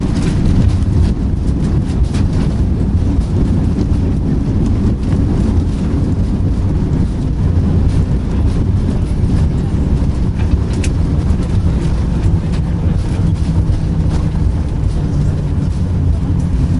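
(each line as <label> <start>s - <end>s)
Ambient sounds of an airplane descending. 0.0s - 16.8s
Wind blowing. 0.0s - 16.8s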